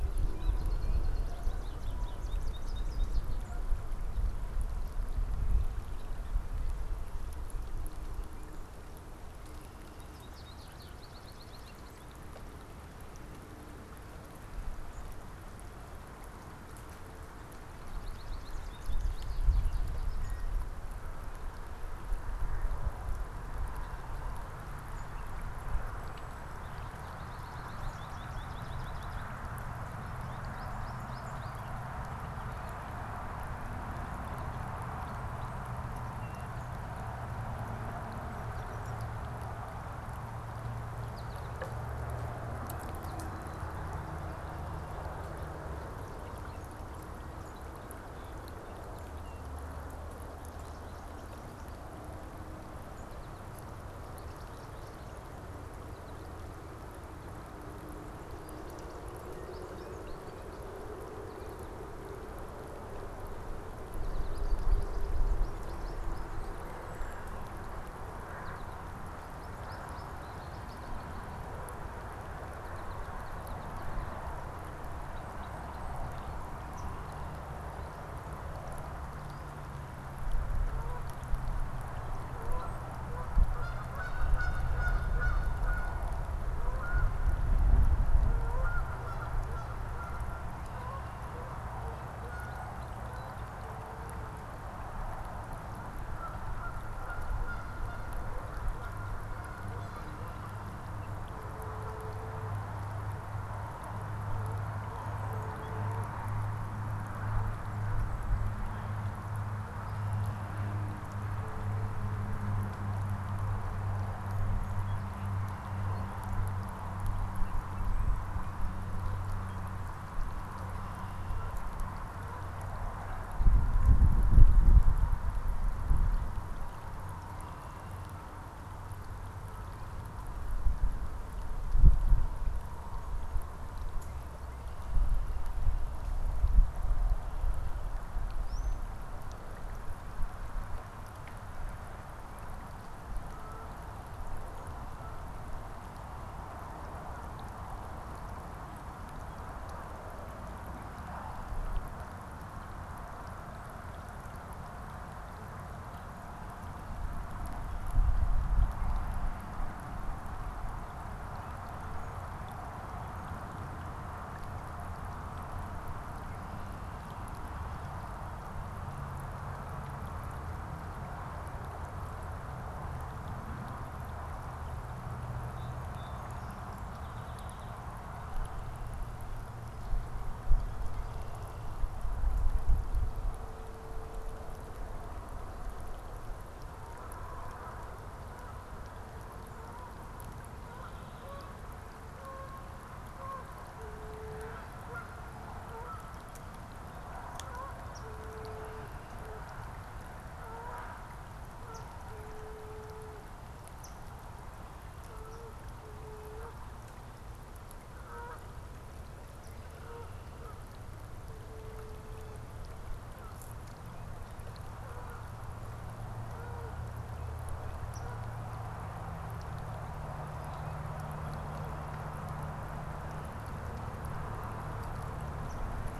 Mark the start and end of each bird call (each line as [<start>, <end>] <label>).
[0.00, 4.25] Canada Goose (Branta canadensis)
[0.05, 3.55] American Goldfinch (Spinus tristis)
[9.65, 12.25] American Goldfinch (Spinus tristis)
[17.55, 20.55] American Goldfinch (Spinus tristis)
[26.45, 31.85] American Goldfinch (Spinus tristis)
[40.85, 41.55] American Goldfinch (Spinus tristis)
[59.05, 60.55] American Goldfinch (Spinus tristis)
[61.15, 61.85] American Goldfinch (Spinus tristis)
[63.55, 66.55] American Goldfinch (Spinus tristis)
[68.15, 75.75] American Goldfinch (Spinus tristis)
[80.45, 97.15] Canada Goose (Branta canadensis)
[138.35, 138.85] unidentified bird
[175.15, 177.85] Song Sparrow (Melospiza melodia)
[183.05, 213.65] Canada Goose (Branta canadensis)
[197.85, 198.05] Eastern Phoebe (Sayornis phoebe)
[201.65, 201.95] Eastern Phoebe (Sayornis phoebe)
[203.75, 204.05] Eastern Phoebe (Sayornis phoebe)
[214.25, 221.65] Canada Goose (Branta canadensis)
[217.85, 218.05] Eastern Phoebe (Sayornis phoebe)
[225.45, 225.65] Eastern Phoebe (Sayornis phoebe)